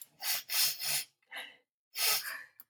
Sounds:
Sniff